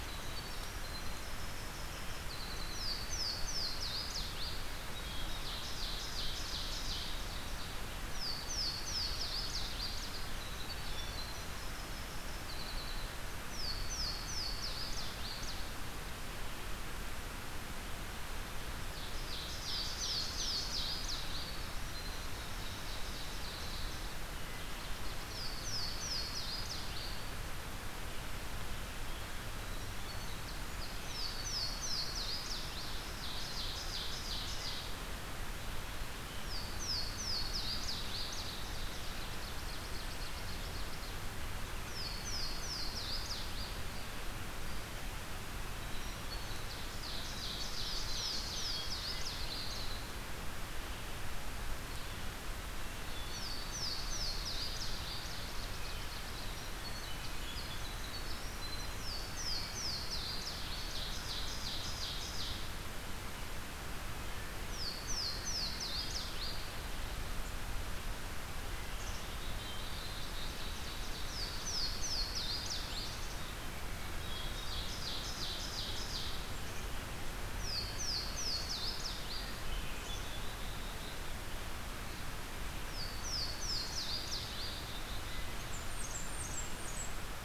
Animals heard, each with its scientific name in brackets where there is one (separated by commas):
Black-capped Chickadee (Poecile atricapillus), Louisiana Waterthrush (Parkesia motacilla), Hermit Thrush (Catharus guttatus), Blackburnian Warbler (Setophaga fusca), Ovenbird (Seiurus aurocapilla), Winter Wren (Troglodytes hiemalis)